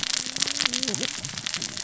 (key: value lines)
label: biophony, cascading saw
recorder: SoundTrap 600 or HydroMoth